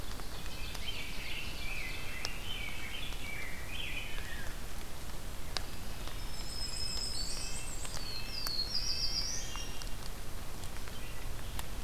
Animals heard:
Black-and-white Warbler (Mniotilta varia), Ovenbird (Seiurus aurocapilla), Red-breasted Nuthatch (Sitta canadensis), Rose-breasted Grosbeak (Pheucticus ludovicianus), Black-throated Green Warbler (Setophaga virens), Black-throated Blue Warbler (Setophaga caerulescens)

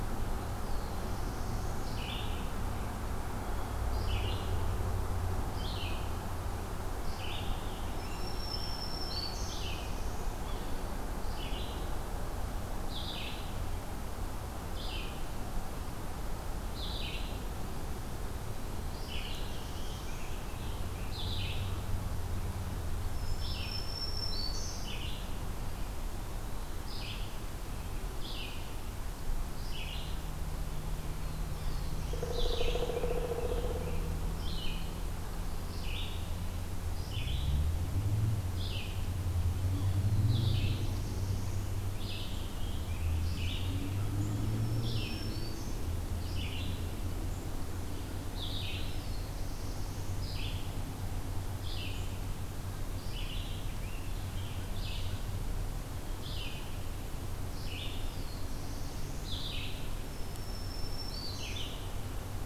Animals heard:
Pileated Woodpecker (Dryocopus pileatus), Yellow-bellied Sapsucker (Sphyrapicus varius), Red-eyed Vireo (Vireo olivaceus), Eastern Wood-Pewee (Contopus virens), American Robin (Turdus migratorius), Black-throated Green Warbler (Setophaga virens), Black-throated Blue Warbler (Setophaga caerulescens)

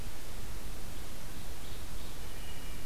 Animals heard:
Wood Thrush (Hylocichla mustelina), Ovenbird (Seiurus aurocapilla)

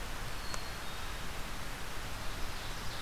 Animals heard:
Ovenbird (Seiurus aurocapilla), Black-capped Chickadee (Poecile atricapillus)

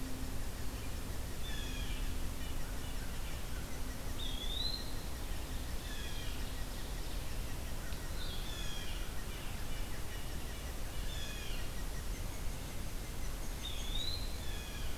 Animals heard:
unidentified call, Red-breasted Nuthatch (Sitta canadensis), Eastern Wood-Pewee (Contopus virens), Blue Jay (Cyanocitta cristata)

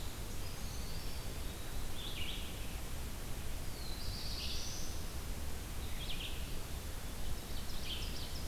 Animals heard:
Brown Creeper (Certhia americana), Eastern Wood-Pewee (Contopus virens), Red-eyed Vireo (Vireo olivaceus), Black-throated Blue Warbler (Setophaga caerulescens), Ovenbird (Seiurus aurocapilla)

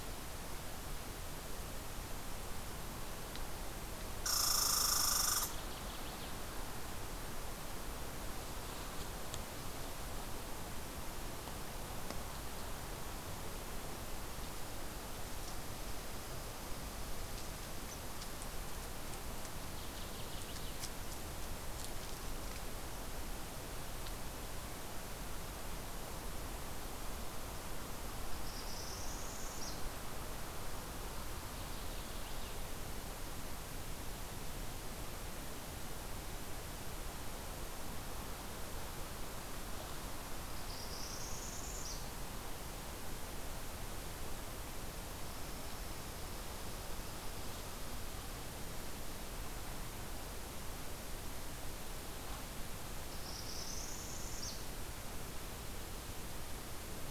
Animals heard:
Red Squirrel (Tamiasciurus hudsonicus), Northern Waterthrush (Parkesia noveboracensis), Northern Parula (Setophaga americana)

